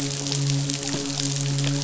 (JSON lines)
{"label": "biophony, midshipman", "recorder": "SoundTrap 500"}